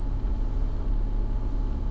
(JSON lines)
{"label": "anthrophony, boat engine", "recorder": "SoundTrap 300"}